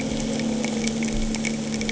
{"label": "anthrophony, boat engine", "recorder": "HydroMoth"}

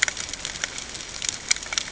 {"label": "ambient", "recorder": "HydroMoth"}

